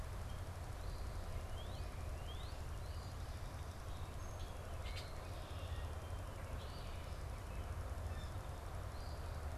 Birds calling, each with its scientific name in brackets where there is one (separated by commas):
Eastern Phoebe (Sayornis phoebe), Northern Cardinal (Cardinalis cardinalis)